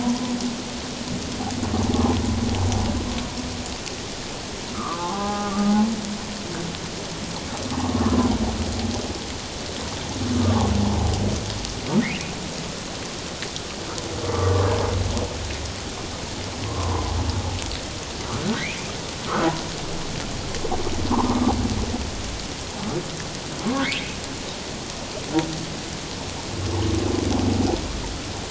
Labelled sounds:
4.7	5.7	humpback whale, 0.78 to 1.7 kHz
7.7	8.0	humpback whale, 0.78 to 1.2 kHz
14.3	14.7	humpback whale, 1.1 to 1.3 kHz
16.6	17.0	humpback whale, 0.84 to 1.2 kHz
18.4	18.7	humpback whale, 1.4 to 1.7 kHz

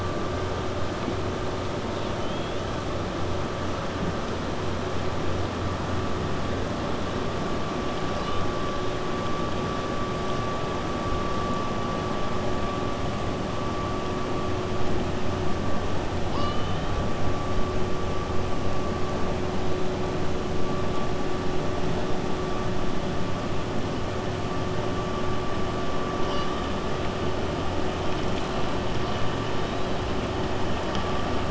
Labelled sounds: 1.9	2.6	killer whale, 2.6 to 3.9 kHz
16.2	16.9	killer whale, 0.95 to 5.3 kHz

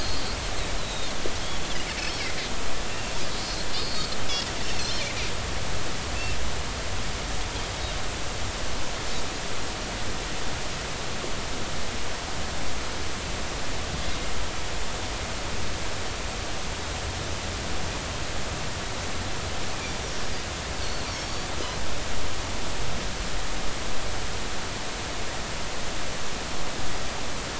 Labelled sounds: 0.8	1.1	Pacific white-sided dolphin, 3.6 to 4.1 kHz
3.7	4.1	Pacific white-sided dolphin, 4.0 to 4.5 kHz
4.8	5.1	Pacific white-sided dolphin, 4.0 to 4.4 kHz
20.0	20.2	Pacific white-sided dolphin, 5.6 to 5.9 kHz
21.0	21.5	Pacific white-sided dolphin, 5.3 to 7.0 kHz

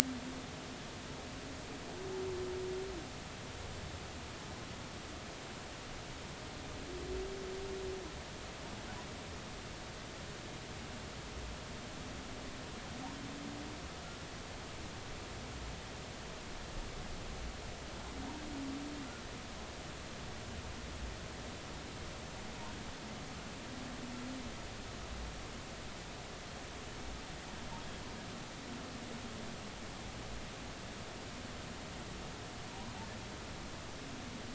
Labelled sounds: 32.7	33.0	humpback whale, 0.90 to 1.1 kHz

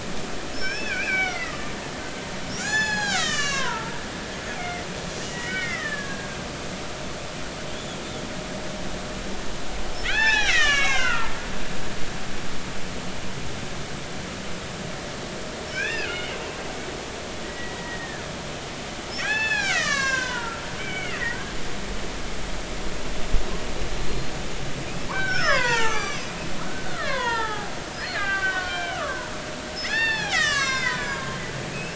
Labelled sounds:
0.5	1.7	killer whale, Bigg's (transient), 1.2 to 6.1 kHz
2.6	4.0	killer whale, Bigg's (transient), 0.80 to 8.0 kHz
4.5	4.9	killer whale, Bigg's (transient), 1.9 to 2.6 kHz
5.2	6.3	killer whale, Bigg's (transient), 1.1 to 3.1 kHz
10.0	11.3	killer whale, Bigg's (transient), 0.80 to 7.8 kHz
15.7	16.4	killer whale, Bigg's (transient), 1.3 to 3.1 kHz
17.4	18.2	killer whale, Bigg's (transient), 1.6 to 2.0 kHz
19.2	21.2	killer whale, Bigg's (transient), 0.80 to 7.8 kHz
24.0	31.9	killer whale, Bigg's (transient), 0.80 to 8.0 kHz

